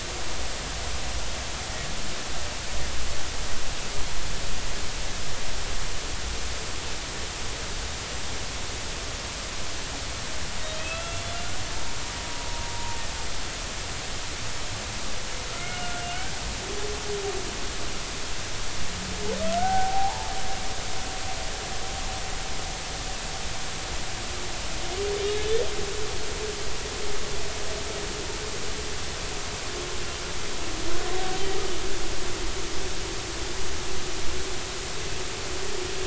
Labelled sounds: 10.8	11.4	humpback whale, 1.3 to 3.5 kHz
15.5	16.0	humpback whale, 1.2 to 2.2 kHz
19.6	20.3	humpback whale, 0.80 to 1.6 kHz

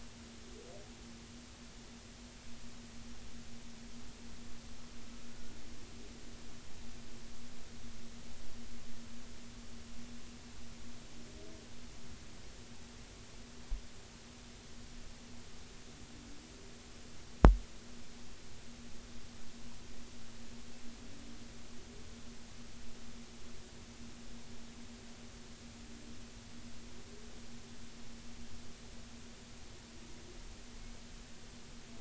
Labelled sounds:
5.3	5.6	humpback whale, 1.3 to 1.5 kHz

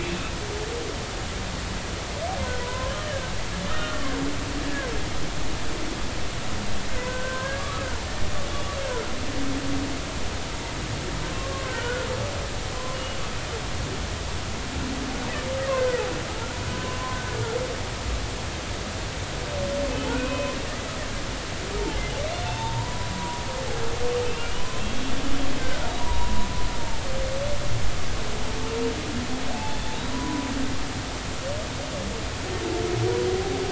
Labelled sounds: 0.0	0.3	humpback whale, 2.5 to 2.7 kHz
2.6	3.3	humpback whale, 0.93 to 1.9 kHz
3.7	4.1	humpback whale, 1.0 to 1.5 kHz
7.1	7.9	humpback whale, 0.99 to 1.7 kHz
11.5	12.1	humpback whale, 0.99 to 1.6 kHz
15.7	16.0	humpback whale, 1.2 to 1.6 kHz
16.7	17.0	humpback whale, 0.96 to 1.1 kHz
20.1	20.6	humpback whale, 0.96 to 2.6 kHz
22.5	23.4	humpback whale, 0.83 to 1.0 kHz
24.2	25.0	humpback whale, 2.6 to 3.3 kHz
26.0	26.5	humpback whale, 0.90 to 1.1 kHz
29.5	29.8	humpback whale, 0.80 to 0.93 kHz
30.1	30.5	humpback whale, 0.96 to 1.1 kHz

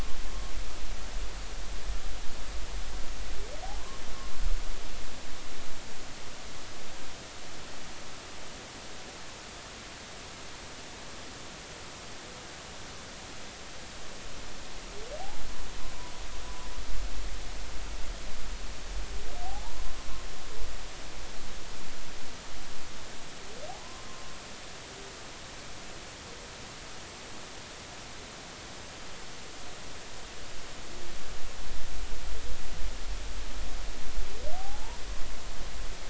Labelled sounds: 19.4	19.8	humpback whale, 0.80 to 1.1 kHz
23.8	24.1	humpback whale, 0.96 to 1.1 kHz
34.6	35.0	humpback whale, 0.80 to 1.0 kHz

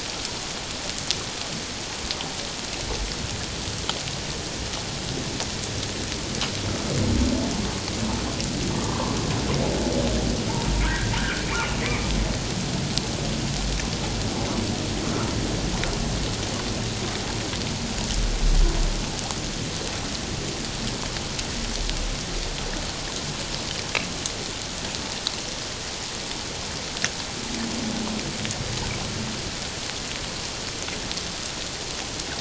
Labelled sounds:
8.8	9.2	humpback whale, 0.88 to 1.2 kHz
10.8	11.4	humpback whale, 1.4 to 1.9 kHz

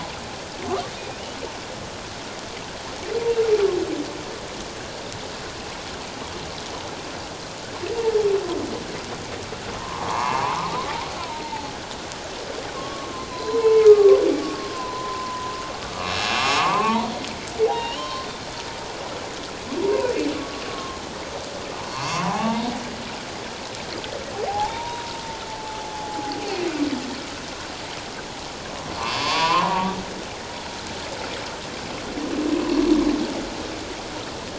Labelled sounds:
9.8	11.7	humpback whale, 0.78 to 2.8 kHz
12.7	17.1	humpback whale, 0.78 to 5.5 kHz
17.7	18.3	humpback whale, 0.78 to 3.2 kHz
20.3	21.0	humpback whale, 1.0 to 1.2 kHz
21.9	22.6	humpback whale, 0.78 to 5.7 kHz
24.5	26.4	humpback whale, 0.78 to 1.0 kHz
29.0	29.9	humpback whale, 0.88 to 2.7 kHz

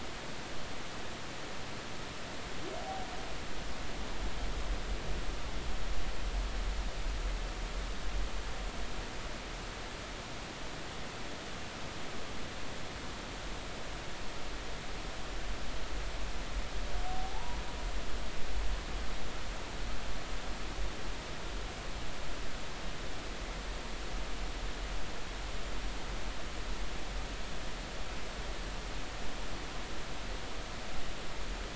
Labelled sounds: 17.0	17.6	humpback whale, 0.80 to 1.0 kHz

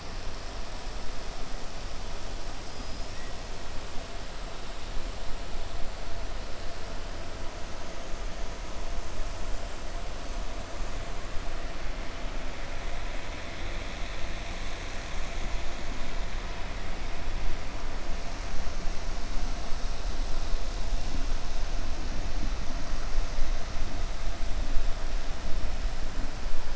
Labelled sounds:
2.6	3.2	killer whale, 5.0 to 6.6 kHz

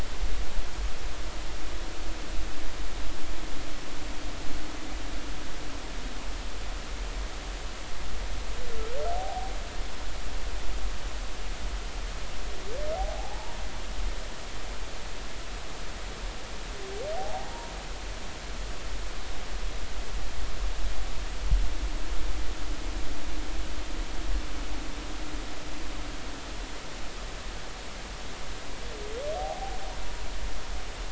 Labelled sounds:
9.1	9.5	humpback whale, 0.80 to 0.86 kHz
12.9	13.6	humpback whale, 0.80 to 0.99 kHz
17.2	17.5	humpback whale, 0.80 to 0.99 kHz
29.4	29.8	humpback whale, 0.80 to 0.86 kHz

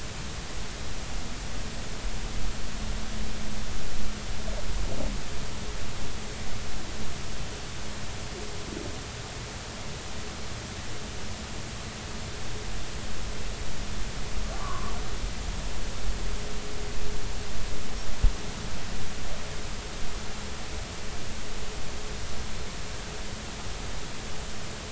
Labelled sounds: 14.5	14.9	humpback whale, 0.99 to 1.3 kHz

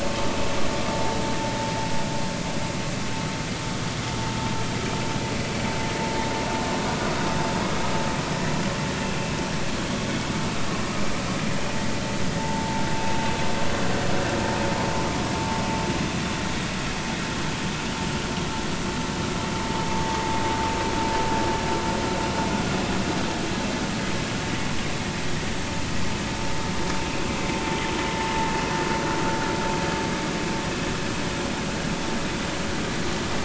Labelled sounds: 12.4	12.8	vessel noise, 0.83 to 0.96 kHz

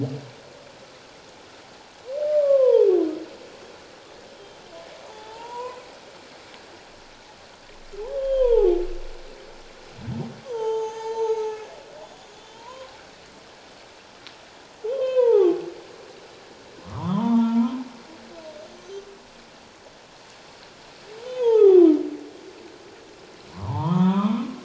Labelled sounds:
2.4	2.9	humpback whale, 0.81 to 1.2 kHz
4.4	4.6	humpback whale, 3.1 to 3.4 kHz
5.0	5.8	humpback whale, 0.78 to 3.6 kHz
8.0	8.7	humpback whale, 0.78 to 3.4 kHz
10.4	11.7	humpback whale, 0.78 to 6.8 kHz
12.3	12.9	humpback whale, 0.91 to 3.6 kHz
14.9	15.6	humpback whale, 0.78 to 3.7 kHz
16.8	17.8	humpback whale, 0.84 to 3.7 kHz
18.7	19.0	humpback whale, 6.0 to 6.4 kHz
21.3	21.8	humpback whale, 0.78 to 3.6 kHz
23.5	24.5	humpback whale, 0.78 to 3.7 kHz

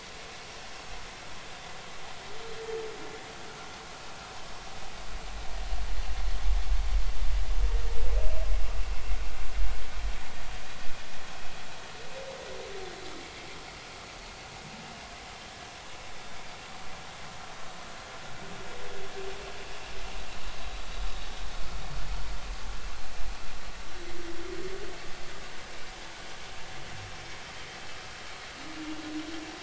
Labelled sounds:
28.7	29.0	vessel noise, 2.7 to 2.9 kHz

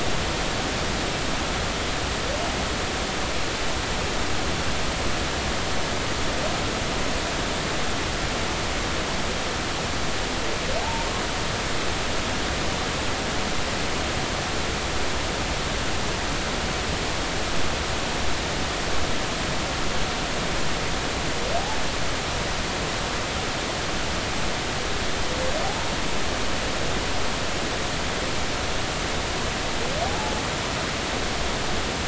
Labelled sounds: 10.8	11.1	humpback whale, 0.80 to 0.96 kHz
25.6	25.9	humpback whale, 0.80 to 0.99 kHz
30.0	30.3	humpback whale, 0.80 to 0.93 kHz

